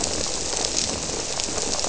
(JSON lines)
{"label": "biophony", "recorder": "SoundTrap 300"}